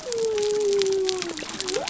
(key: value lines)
label: biophony
recorder: SoundTrap 300